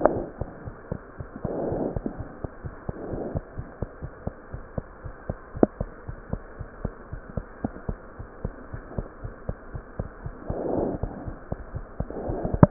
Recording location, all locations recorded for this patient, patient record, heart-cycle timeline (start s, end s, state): aortic valve (AV)
aortic valve (AV)+pulmonary valve (PV)+mitral valve (MV)
#Age: Infant
#Sex: Female
#Height: 70.0 cm
#Weight: 8.0 kg
#Pregnancy status: False
#Murmur: Unknown
#Murmur locations: nan
#Most audible location: nan
#Systolic murmur timing: nan
#Systolic murmur shape: nan
#Systolic murmur grading: nan
#Systolic murmur pitch: nan
#Systolic murmur quality: nan
#Diastolic murmur timing: nan
#Diastolic murmur shape: nan
#Diastolic murmur grading: nan
#Diastolic murmur pitch: nan
#Diastolic murmur quality: nan
#Outcome: Normal
#Campaign: 2015 screening campaign
0.00	3.55	unannotated
3.55	3.63	S1
3.63	3.79	systole
3.79	3.87	S2
3.87	4.02	diastole
4.02	4.09	S1
4.09	4.24	systole
4.24	4.31	S2
4.31	4.51	diastole
4.51	4.57	S1
4.57	4.76	systole
4.76	4.82	S2
4.82	5.02	diastole
5.02	5.09	S1
5.09	5.27	systole
5.27	5.35	S2
5.35	5.54	diastole
5.54	5.61	S1
5.61	5.77	systole
5.77	5.86	S2
5.86	6.06	diastole
6.06	6.13	S1
6.13	6.31	systole
6.31	6.40	S2
6.40	6.58	diastole
6.58	6.66	S1
6.66	6.81	systole
6.81	6.92	S2
6.92	7.10	diastole
7.10	7.19	S1
7.19	7.34	systole
7.34	7.44	S2
7.44	7.62	diastole
7.62	7.69	S1
7.69	7.87	systole
7.87	7.95	S2
7.95	8.17	diastole
8.17	8.26	S1
8.26	8.43	systole
8.43	8.51	S2
8.51	8.71	diastole
8.71	8.79	S1
8.79	8.95	systole
8.95	9.03	S2
9.03	9.22	diastole
9.22	9.30	S1
9.30	9.47	systole
9.47	9.55	S2
9.55	9.73	diastole
9.73	9.79	S1
9.79	9.97	systole
9.97	10.04	S2
10.04	10.23	diastole
10.23	10.31	S1
10.31	12.70	unannotated